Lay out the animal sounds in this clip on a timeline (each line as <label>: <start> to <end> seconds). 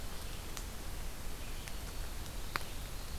Red-eyed Vireo (Vireo olivaceus): 0.0 to 3.2 seconds
Black-throated Green Warbler (Setophaga virens): 1.1 to 2.6 seconds